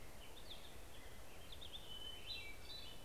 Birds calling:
Black-headed Grosbeak (Pheucticus melanocephalus)
Hermit Thrush (Catharus guttatus)

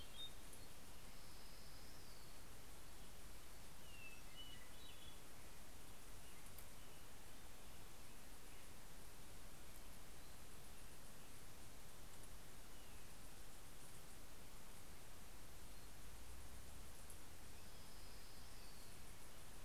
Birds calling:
Hermit Thrush (Catharus guttatus)
Orange-crowned Warbler (Leiothlypis celata)

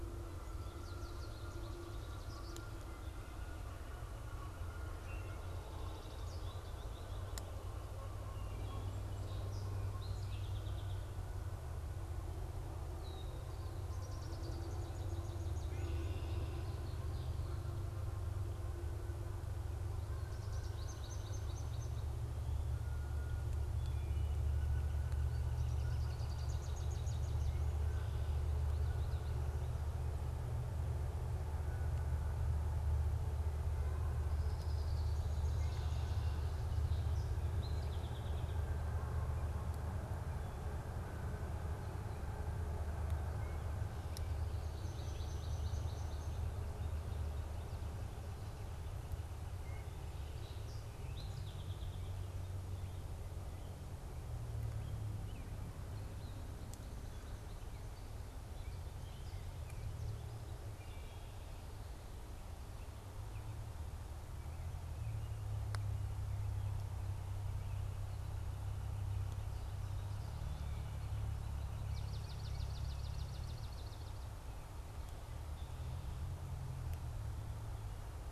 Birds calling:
Swamp Sparrow (Melospiza georgiana)
Red-winged Blackbird (Agelaius phoeniceus)
Song Sparrow (Melospiza melodia)
American Goldfinch (Spinus tristis)
Wood Thrush (Hylocichla mustelina)
Northern Flicker (Colaptes auratus)

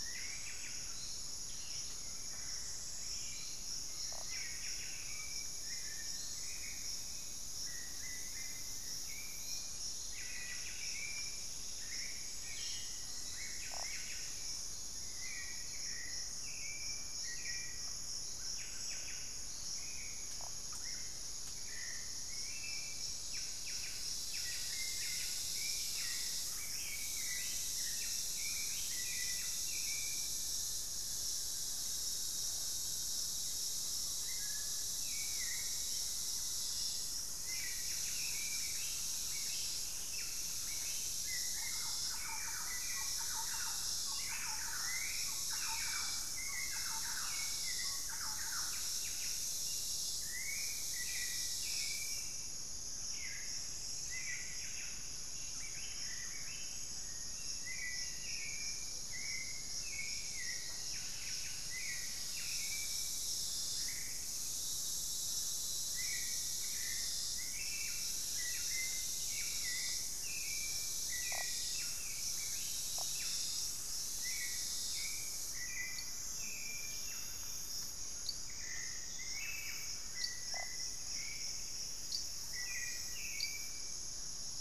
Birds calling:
Thrush-like Wren (Campylorhynchus turdinus)
Buff-breasted Wren (Cantorchilus leucotis)
Hauxwell's Thrush (Turdus hauxwelli)
Black-faced Antthrush (Formicarius analis)
Plumbeous Pigeon (Patagioenas plumbea)
unidentified bird
Pygmy Antwren (Myrmotherula brachyura)

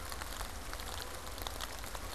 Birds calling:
Canada Goose (Branta canadensis)

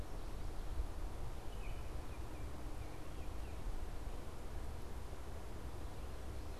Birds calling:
Baltimore Oriole (Icterus galbula)

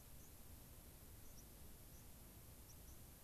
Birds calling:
White-crowned Sparrow (Zonotrichia leucophrys)

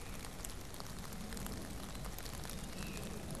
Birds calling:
Veery (Catharus fuscescens)

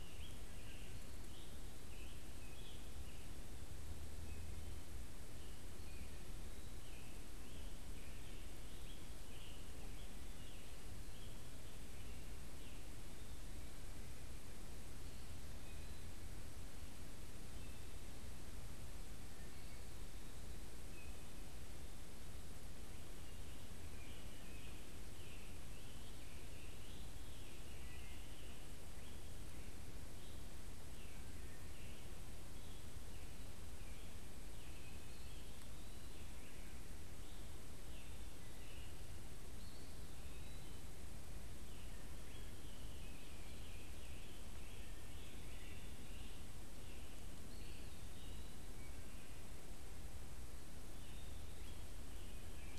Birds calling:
Wood Thrush (Hylocichla mustelina)
Eastern Wood-Pewee (Contopus virens)
Scarlet Tanager (Piranga olivacea)

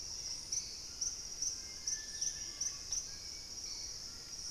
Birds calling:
White-throated Toucan (Ramphastos tucanus)
Purple-throated Fruitcrow (Querula purpurata)
Screaming Piha (Lipaugus vociferans)
Wing-barred Piprites (Piprites chloris)
Hauxwell's Thrush (Turdus hauxwelli)
Dusky-capped Greenlet (Pachysylvia hypoxantha)

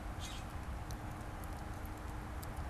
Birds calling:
Mourning Dove (Zenaida macroura)
Common Grackle (Quiscalus quiscula)

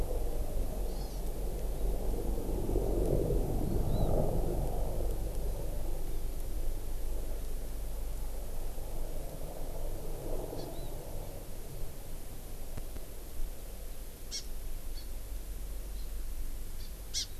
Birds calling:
Hawaii Amakihi (Chlorodrepanis virens)

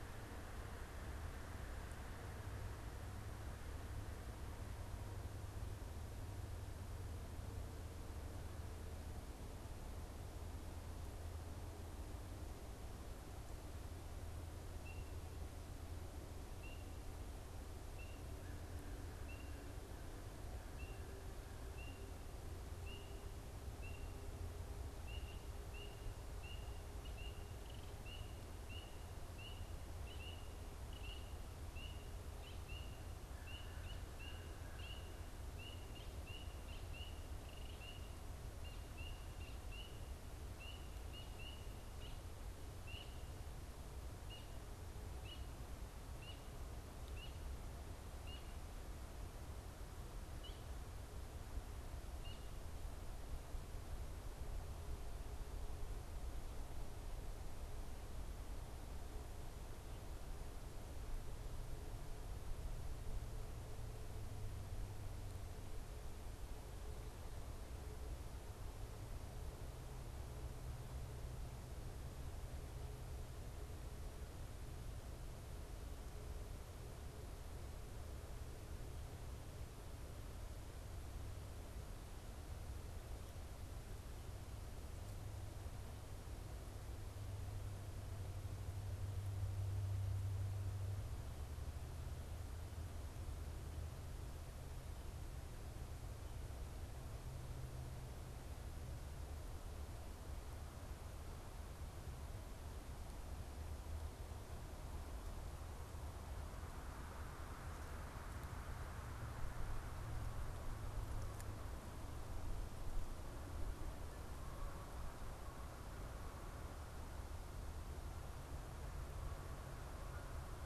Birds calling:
American Crow (Corvus brachyrhynchos)
Canada Goose (Branta canadensis)

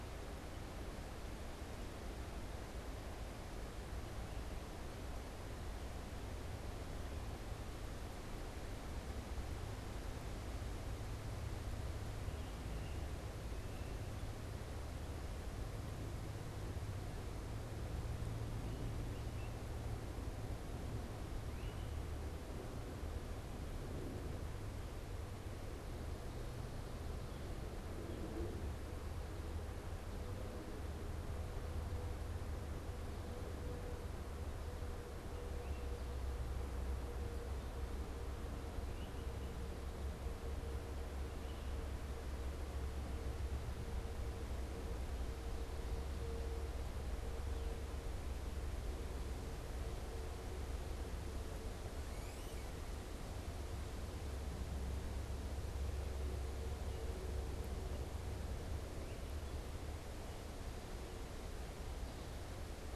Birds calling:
unidentified bird
Great Crested Flycatcher (Myiarchus crinitus)

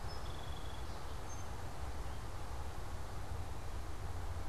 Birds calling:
Black-capped Chickadee (Poecile atricapillus)
Song Sparrow (Melospiza melodia)

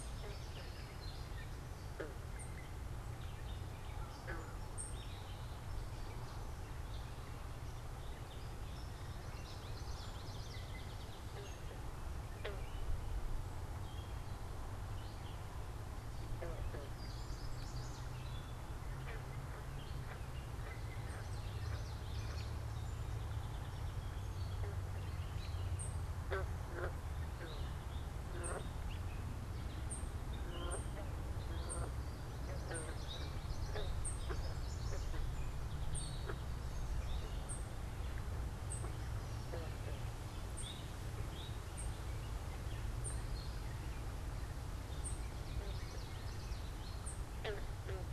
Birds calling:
Chestnut-sided Warbler (Setophaga pensylvanica)
Gray Catbird (Dumetella carolinensis)
Eastern Towhee (Pipilo erythrophthalmus)
Common Yellowthroat (Geothlypis trichas)
unidentified bird
Song Sparrow (Melospiza melodia)

